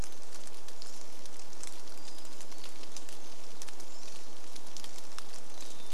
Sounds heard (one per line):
Pacific-slope Flycatcher call
Pacific-slope Flycatcher song
rain
Hermit Thrush song